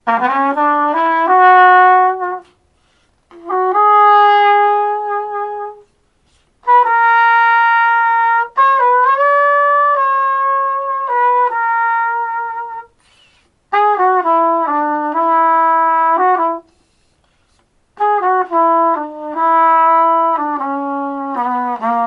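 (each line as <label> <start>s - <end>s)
A loud, rhythmic trumpet sound with ascending pitch. 0.0s - 2.5s
A loud, rhythmic trumpet sound with ascending pitch. 3.2s - 5.9s
A loud, rhythmic trumpet sound with ascending pitch. 6.6s - 12.9s
A loud, rhythmic trumpet sound with a descending pitch. 13.6s - 16.7s
A loud, rhythmic trumpet sound with a descending pitch. 17.9s - 22.1s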